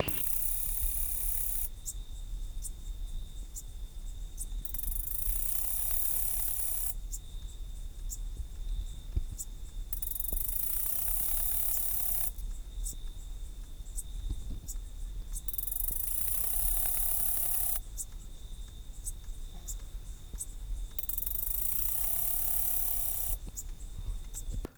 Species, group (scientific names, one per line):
Saga hellenica
Orthoptera